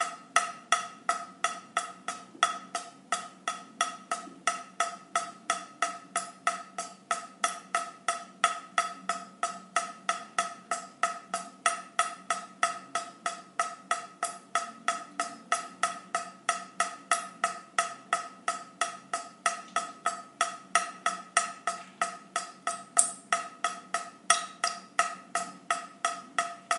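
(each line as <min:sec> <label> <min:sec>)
0:00.0 Water drips periodically from a faucet. 0:26.8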